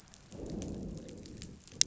{"label": "biophony, growl", "recorder": "SoundTrap 500"}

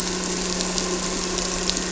{"label": "anthrophony, boat engine", "recorder": "SoundTrap 300"}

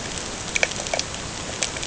{"label": "ambient", "recorder": "HydroMoth"}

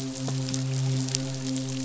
{"label": "biophony, midshipman", "recorder": "SoundTrap 500"}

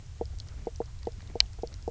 {"label": "biophony, knock croak", "recorder": "SoundTrap 300"}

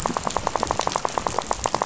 {"label": "biophony, rattle", "recorder": "SoundTrap 500"}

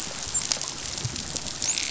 {"label": "biophony, dolphin", "recorder": "SoundTrap 500"}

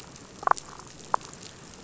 {"label": "biophony, damselfish", "recorder": "SoundTrap 500"}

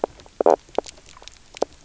{"label": "biophony, knock croak", "recorder": "SoundTrap 300"}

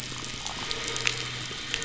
{"label": "biophony, croak", "recorder": "SoundTrap 500"}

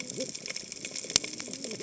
{"label": "biophony, cascading saw", "recorder": "HydroMoth"}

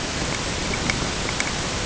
{"label": "ambient", "recorder": "HydroMoth"}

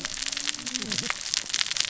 {"label": "biophony, cascading saw", "recorder": "SoundTrap 600 or HydroMoth"}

